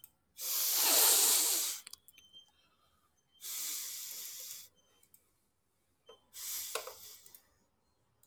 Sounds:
Sniff